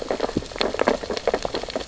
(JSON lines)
{"label": "biophony, sea urchins (Echinidae)", "recorder": "SoundTrap 600 or HydroMoth"}